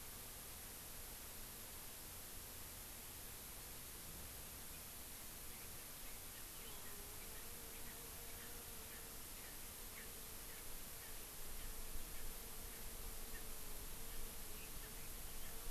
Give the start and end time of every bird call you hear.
[7.27, 7.47] Erckel's Francolin (Pternistis erckelii)
[7.87, 7.97] Erckel's Francolin (Pternistis erckelii)
[8.37, 8.47] Erckel's Francolin (Pternistis erckelii)
[8.87, 9.07] Erckel's Francolin (Pternistis erckelii)
[9.37, 9.57] Erckel's Francolin (Pternistis erckelii)
[9.87, 10.07] Erckel's Francolin (Pternistis erckelii)
[10.47, 10.67] Erckel's Francolin (Pternistis erckelii)
[10.97, 11.17] Erckel's Francolin (Pternistis erckelii)
[11.57, 11.67] Erckel's Francolin (Pternistis erckelii)
[12.17, 12.27] Erckel's Francolin (Pternistis erckelii)
[13.27, 13.47] Erckel's Francolin (Pternistis erckelii)

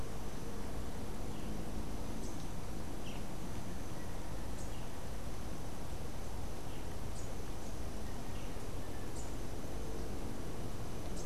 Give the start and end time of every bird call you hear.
[1.60, 11.25] Rufous-capped Warbler (Basileuterus rufifrons)
[2.90, 8.90] Boat-billed Flycatcher (Megarynchus pitangua)

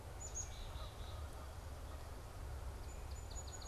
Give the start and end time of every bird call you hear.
[0.00, 1.40] Black-capped Chickadee (Poecile atricapillus)
[2.70, 3.68] Song Sparrow (Melospiza melodia)

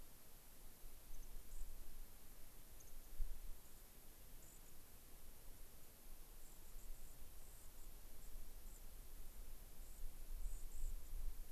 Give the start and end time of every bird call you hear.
[1.11, 1.71] White-crowned Sparrow (Zonotrichia leucophrys)
[2.71, 3.11] White-crowned Sparrow (Zonotrichia leucophrys)
[3.61, 3.81] White-crowned Sparrow (Zonotrichia leucophrys)
[4.41, 4.71] White-crowned Sparrow (Zonotrichia leucophrys)
[6.41, 7.91] White-crowned Sparrow (Zonotrichia leucophrys)
[8.21, 8.31] White-crowned Sparrow (Zonotrichia leucophrys)
[8.61, 8.81] White-crowned Sparrow (Zonotrichia leucophrys)
[9.81, 10.01] White-crowned Sparrow (Zonotrichia leucophrys)
[10.41, 11.11] White-crowned Sparrow (Zonotrichia leucophrys)

